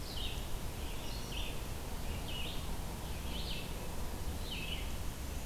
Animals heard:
Red-eyed Vireo (Vireo olivaceus)
Black-and-white Warbler (Mniotilta varia)

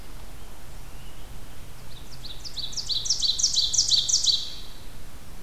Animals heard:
Ovenbird (Seiurus aurocapilla)
American Robin (Turdus migratorius)

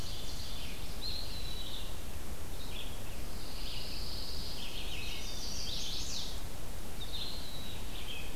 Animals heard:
Pine Warbler (Setophaga pinus)
Red-eyed Vireo (Vireo olivaceus)
Chestnut-sided Warbler (Setophaga pensylvanica)
Ovenbird (Seiurus aurocapilla)
Eastern Wood-Pewee (Contopus virens)

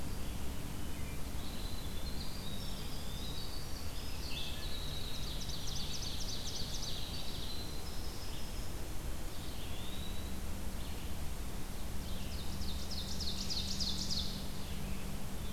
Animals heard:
Red-eyed Vireo (Vireo olivaceus)
Ovenbird (Seiurus aurocapilla)
Eastern Wood-Pewee (Contopus virens)
Winter Wren (Troglodytes hiemalis)

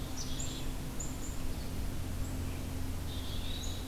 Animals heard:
Red-eyed Vireo (Vireo olivaceus)
Eastern Wood-Pewee (Contopus virens)
Black-capped Chickadee (Poecile atricapillus)

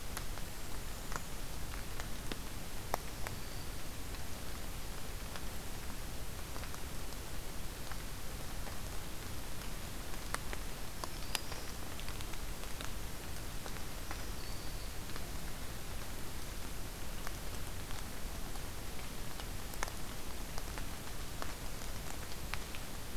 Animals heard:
Black-throated Green Warbler (Setophaga virens)

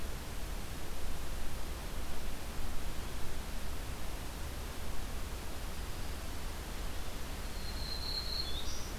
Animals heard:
Black-throated Green Warbler (Setophaga virens)

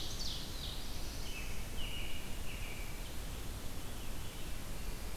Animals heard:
Black-throated Blue Warbler (Setophaga caerulescens)
American Robin (Turdus migratorius)
Veery (Catharus fuscescens)
Ovenbird (Seiurus aurocapilla)
Red-eyed Vireo (Vireo olivaceus)

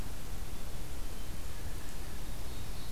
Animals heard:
Ovenbird (Seiurus aurocapilla)

